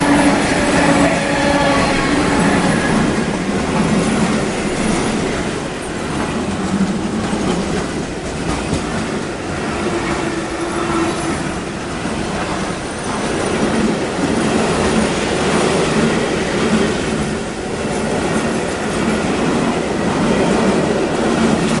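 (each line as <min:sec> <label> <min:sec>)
0:00.0 A train rushing through a station at high speed creates a loud noise. 0:21.8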